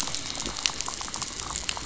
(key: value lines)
label: biophony, rattle
recorder: SoundTrap 500